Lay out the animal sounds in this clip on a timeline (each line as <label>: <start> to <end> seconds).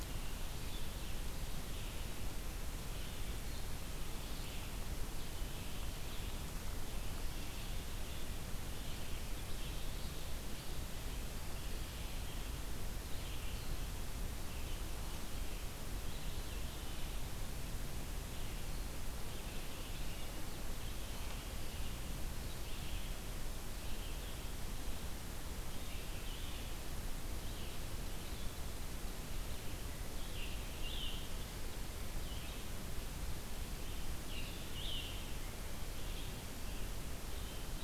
Red-eyed Vireo (Vireo olivaceus): 0.0 to 37.8 seconds
Scarlet Tanager (Piranga olivacea): 29.9 to 31.3 seconds
Scarlet Tanager (Piranga olivacea): 34.0 to 35.2 seconds